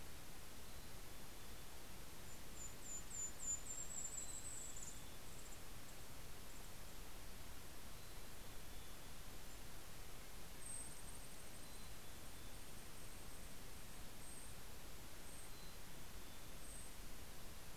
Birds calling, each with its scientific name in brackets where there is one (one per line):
Mountain Chickadee (Poecile gambeli)
Golden-crowned Kinglet (Regulus satrapa)